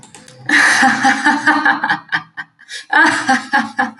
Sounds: Laughter